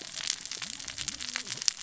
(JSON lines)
{"label": "biophony, cascading saw", "recorder": "SoundTrap 600 or HydroMoth"}